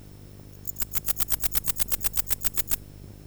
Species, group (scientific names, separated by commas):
Pholidoptera macedonica, Orthoptera